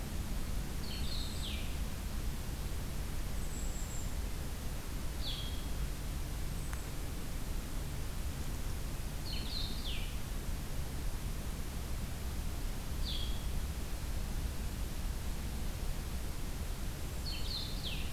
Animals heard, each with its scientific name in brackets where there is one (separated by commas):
Golden-crowned Kinglet (Regulus satrapa), Blue-headed Vireo (Vireo solitarius)